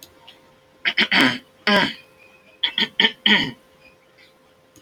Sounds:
Throat clearing